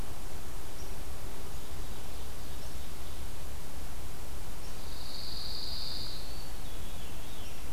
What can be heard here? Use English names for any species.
Ovenbird, Pine Warbler, Eastern Wood-Pewee, Veery